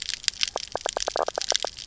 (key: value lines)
label: biophony, knock croak
recorder: SoundTrap 300